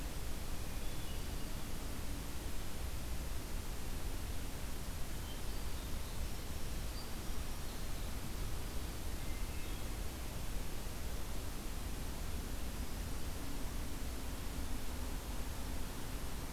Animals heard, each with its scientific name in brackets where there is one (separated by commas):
Hermit Thrush (Catharus guttatus)